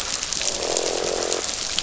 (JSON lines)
{"label": "biophony, croak", "recorder": "SoundTrap 500"}